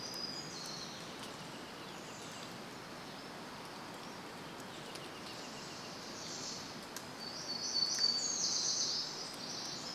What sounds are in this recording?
warbler song, unidentified sound, Pacific Wren song